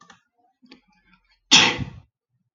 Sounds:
Sneeze